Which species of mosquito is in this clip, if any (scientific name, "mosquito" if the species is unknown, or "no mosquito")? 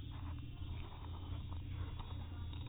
no mosquito